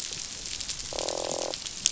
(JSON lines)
{"label": "biophony, croak", "recorder": "SoundTrap 500"}